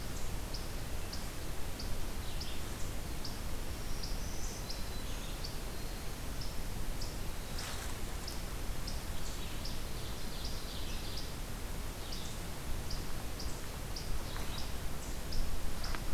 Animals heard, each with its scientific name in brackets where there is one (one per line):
Black-throated Green Warbler (Setophaga virens)
Ovenbird (Seiurus aurocapilla)